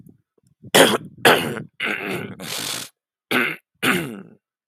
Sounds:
Throat clearing